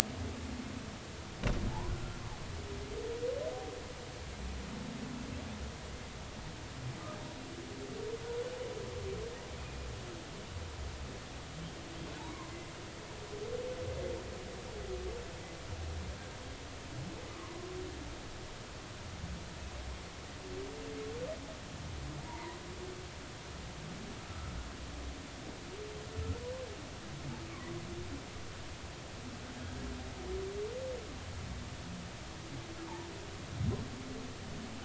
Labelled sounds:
1.9	2.2	humpback whale, 1.3 to 1.5 kHz
9.6	9.9	humpback whale, 2.4 to 2.6 kHz
12.2	12.5	humpback whale, 0.83 to 1.2 kHz
22.2	22.6	humpback whale, 0.86 to 1.1 kHz

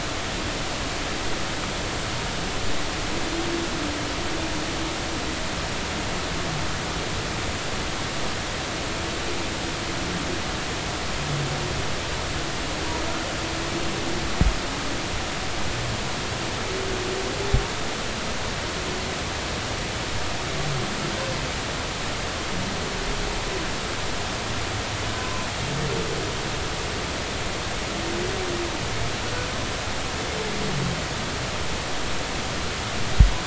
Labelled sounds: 25.2	25.4	humpback whale, 0.99 to 1.2 kHz

